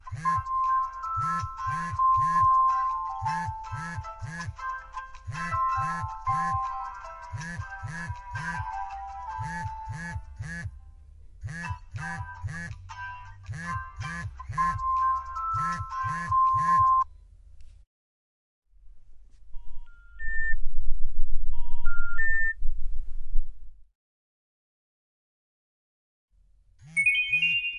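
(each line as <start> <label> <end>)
0.0 An old phone rings and vibrates repeatedly with a melody. 17.3
19.0 An old phone is closing with a simple melody. 23.9
26.8 An old phone is ringing with a melody. 27.8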